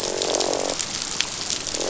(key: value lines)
label: biophony, croak
recorder: SoundTrap 500